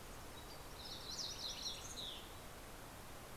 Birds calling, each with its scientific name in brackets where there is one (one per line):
Mountain Chickadee (Poecile gambeli)
Fox Sparrow (Passerella iliaca)